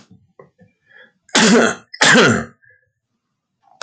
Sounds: Throat clearing